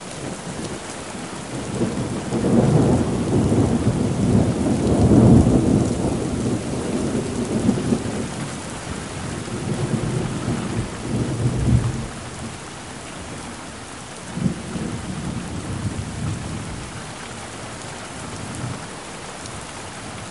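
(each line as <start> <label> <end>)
0.0 Steady rain is falling. 20.3
0.0 Thunder rolling outside with varying intensity. 20.3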